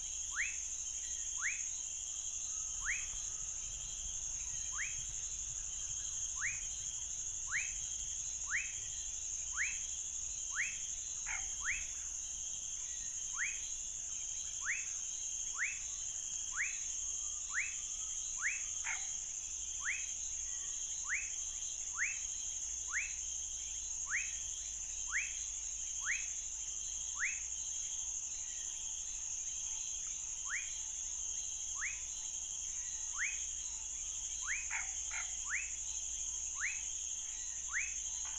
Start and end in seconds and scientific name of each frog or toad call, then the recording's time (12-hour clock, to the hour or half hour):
0.0	38.3	Leptodactylus fuscus
11.3	11.5	Scinax fuscovarius
18.8	19.1	Scinax fuscovarius
34.7	35.4	Scinax fuscovarius
10pm